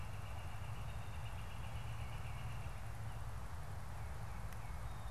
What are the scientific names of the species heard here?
Colaptes auratus, Baeolophus bicolor